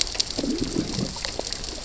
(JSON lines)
{"label": "biophony, growl", "recorder": "SoundTrap 600 or HydroMoth"}